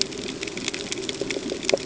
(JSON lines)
{"label": "ambient", "recorder": "HydroMoth"}